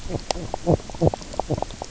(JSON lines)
{"label": "biophony, knock croak", "recorder": "SoundTrap 300"}